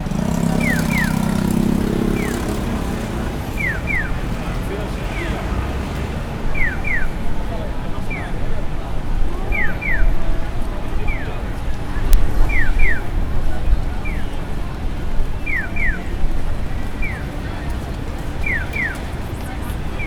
Are there many of birds chirping?
no